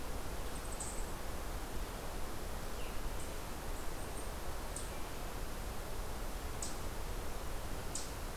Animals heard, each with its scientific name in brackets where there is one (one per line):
Eastern Chipmunk (Tamias striatus)